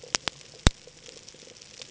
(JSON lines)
{"label": "ambient", "recorder": "HydroMoth"}